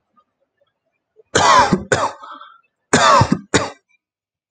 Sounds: Cough